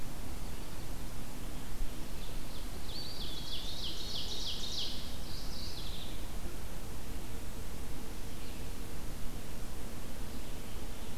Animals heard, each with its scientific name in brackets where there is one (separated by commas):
Mourning Warbler (Geothlypis philadelphia), Eastern Wood-Pewee (Contopus virens), Ovenbird (Seiurus aurocapilla)